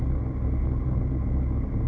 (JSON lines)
{"label": "ambient", "recorder": "HydroMoth"}